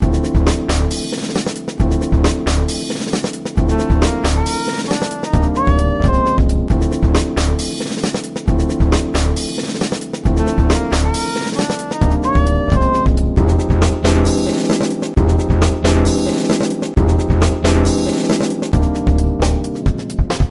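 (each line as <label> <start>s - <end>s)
Drums and bass playing melodically and rhythmically in a repeated pattern. 0.0s - 20.5s
A saxophone plays jazzy phrases with moderate reverb. 3.6s - 6.4s
A saxophone plays jazzy phrases with moderate reverb. 10.3s - 13.1s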